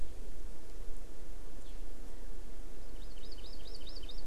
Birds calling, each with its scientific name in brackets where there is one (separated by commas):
Hawaii Amakihi (Chlorodrepanis virens)